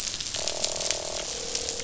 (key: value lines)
label: biophony, croak
recorder: SoundTrap 500